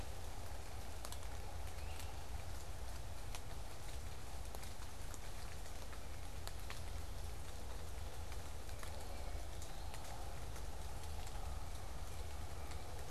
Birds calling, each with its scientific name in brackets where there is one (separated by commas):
Eastern Wood-Pewee (Contopus virens), Great Crested Flycatcher (Myiarchus crinitus), Tufted Titmouse (Baeolophus bicolor)